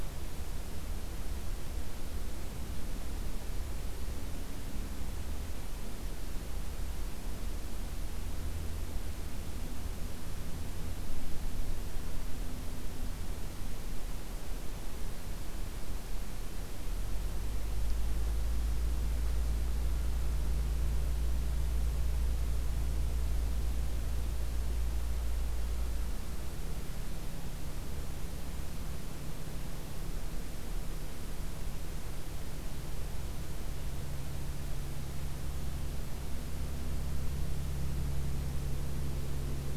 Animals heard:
forest ambience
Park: Acadia National Park